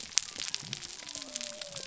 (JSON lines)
{"label": "biophony", "recorder": "SoundTrap 300"}